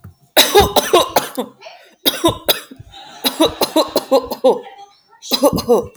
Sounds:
Cough